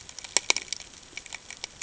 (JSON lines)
{"label": "ambient", "recorder": "HydroMoth"}